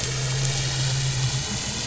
{"label": "anthrophony, boat engine", "recorder": "SoundTrap 500"}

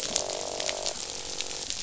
{"label": "biophony, croak", "recorder": "SoundTrap 500"}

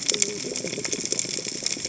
{"label": "biophony, cascading saw", "recorder": "HydroMoth"}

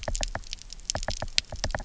{"label": "biophony, knock", "recorder": "SoundTrap 300"}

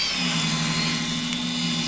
{"label": "anthrophony, boat engine", "recorder": "SoundTrap 500"}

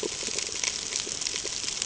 {"label": "ambient", "recorder": "HydroMoth"}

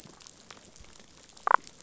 {"label": "biophony, damselfish", "recorder": "SoundTrap 500"}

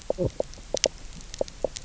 {"label": "biophony, knock croak", "recorder": "SoundTrap 300"}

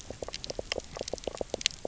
{"label": "biophony, knock croak", "recorder": "SoundTrap 300"}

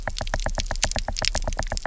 {"label": "biophony, knock", "recorder": "SoundTrap 300"}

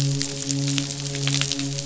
{"label": "biophony, midshipman", "recorder": "SoundTrap 500"}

